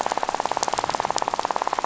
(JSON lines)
{"label": "biophony, rattle", "recorder": "SoundTrap 500"}